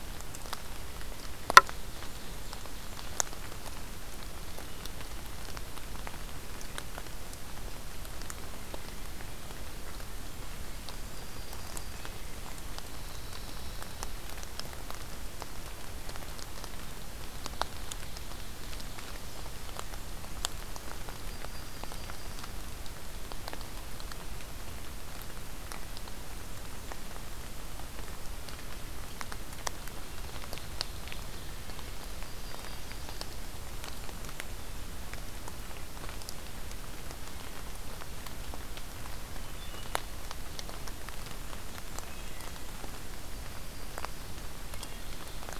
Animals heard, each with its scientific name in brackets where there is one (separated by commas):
Pine Warbler (Setophaga pinus), Yellow-rumped Warbler (Setophaga coronata), Wood Thrush (Hylocichla mustelina)